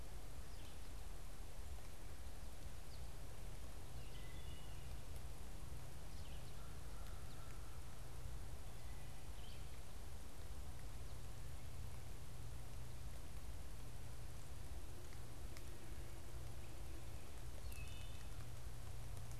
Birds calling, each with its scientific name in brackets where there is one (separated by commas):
Wood Thrush (Hylocichla mustelina), Red-eyed Vireo (Vireo olivaceus)